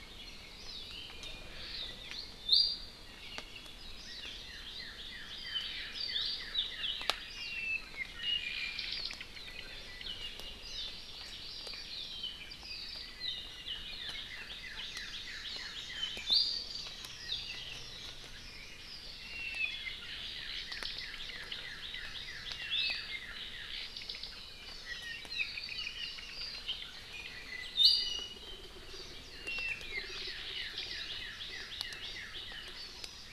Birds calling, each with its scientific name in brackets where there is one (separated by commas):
Apapane (Himatione sanguinea), Warbling White-eye (Zosterops japonicus), Hawaii Amakihi (Chlorodrepanis virens), Iiwi (Drepanis coccinea), Northern Cardinal (Cardinalis cardinalis)